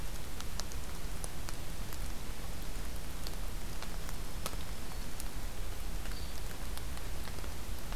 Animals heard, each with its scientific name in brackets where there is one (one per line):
Black-throated Green Warbler (Setophaga virens)
Hairy Woodpecker (Dryobates villosus)